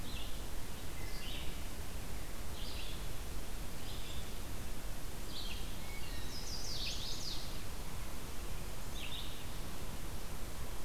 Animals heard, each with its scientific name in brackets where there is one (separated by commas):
Chestnut-sided Warbler (Setophaga pensylvanica), Black-throated Blue Warbler (Setophaga caerulescens), Red-eyed Vireo (Vireo olivaceus), Wood Thrush (Hylocichla mustelina)